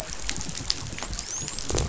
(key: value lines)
label: biophony, dolphin
recorder: SoundTrap 500